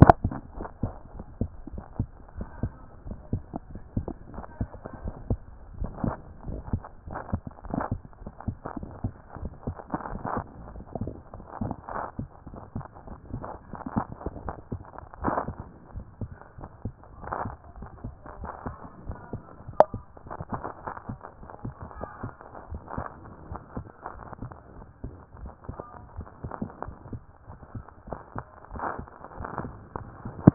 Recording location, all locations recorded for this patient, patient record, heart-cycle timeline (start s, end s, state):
aortic valve (AV)
aortic valve (AV)+pulmonary valve (PV)+tricuspid valve (TV)+mitral valve (MV)+mitral valve (MV)
#Age: Adolescent
#Sex: Male
#Height: 150.0 cm
#Weight: 41.1 kg
#Pregnancy status: False
#Murmur: Absent
#Murmur locations: nan
#Most audible location: nan
#Systolic murmur timing: nan
#Systolic murmur shape: nan
#Systolic murmur grading: nan
#Systolic murmur pitch: nan
#Systolic murmur quality: nan
#Diastolic murmur timing: nan
#Diastolic murmur shape: nan
#Diastolic murmur grading: nan
#Diastolic murmur pitch: nan
#Diastolic murmur quality: nan
#Outcome: Normal
#Campaign: 2014 screening campaign
0.00	0.56	unannotated
0.56	0.68	S1
0.68	0.82	systole
0.82	0.94	S2
0.94	1.14	diastole
1.14	1.26	S1
1.26	1.40	systole
1.40	1.48	S2
1.48	1.72	diastole
1.72	1.84	S1
1.84	1.98	systole
1.98	2.08	S2
2.08	2.36	diastole
2.36	2.48	S1
2.48	2.62	systole
2.62	2.72	S2
2.72	3.06	diastole
3.06	3.18	S1
3.18	3.32	systole
3.32	3.44	S2
3.44	3.72	diastole
3.72	3.82	S1
3.82	3.96	systole
3.96	4.12	S2
4.12	4.34	diastole
4.34	30.54	unannotated